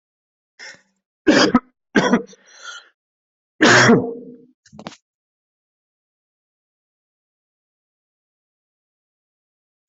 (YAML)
expert_labels:
- quality: poor
  cough_type: unknown
  dyspnea: false
  wheezing: false
  stridor: false
  choking: false
  congestion: false
  nothing: true
  diagnosis: lower respiratory tract infection
  severity: mild
age: 42
gender: male
respiratory_condition: false
fever_muscle_pain: false
status: symptomatic